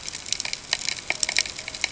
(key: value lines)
label: ambient
recorder: HydroMoth